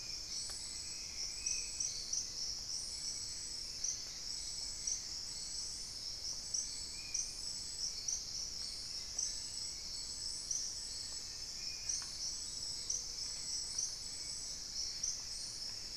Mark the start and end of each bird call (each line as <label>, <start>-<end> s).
Spot-winged Antshrike (Pygiptila stellaris), 0.0-7.4 s
Hauxwell's Thrush (Turdus hauxwelli), 0.0-16.0 s
Ruddy Quail-Dove (Geotrygon montana), 1.4-2.7 s
Gray Antbird (Cercomacra cinerascens), 3.4-5.7 s
Plain-winged Antshrike (Thamnophilus schistaceus), 10.1-12.3 s
Gray-fronted Dove (Leptotila rufaxilla), 12.7-13.5 s